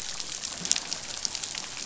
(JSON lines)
{"label": "biophony, damselfish", "recorder": "SoundTrap 500"}